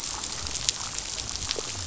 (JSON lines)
{"label": "biophony", "recorder": "SoundTrap 500"}